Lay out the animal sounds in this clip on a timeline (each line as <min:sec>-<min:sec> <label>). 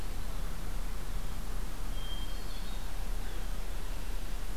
0:01.9-0:02.9 Hermit Thrush (Catharus guttatus)